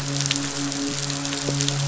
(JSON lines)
{"label": "biophony, midshipman", "recorder": "SoundTrap 500"}